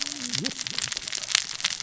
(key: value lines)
label: biophony, cascading saw
recorder: SoundTrap 600 or HydroMoth